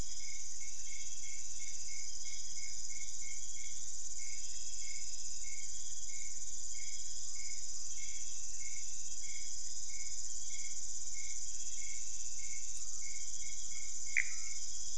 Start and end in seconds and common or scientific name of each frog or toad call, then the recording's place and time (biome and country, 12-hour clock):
14.0	14.7	Pithecopus azureus
Cerrado, Brazil, 2:15am